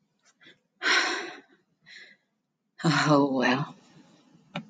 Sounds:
Sigh